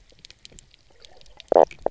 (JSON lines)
{"label": "biophony, knock croak", "recorder": "SoundTrap 300"}